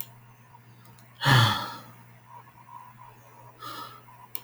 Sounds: Sigh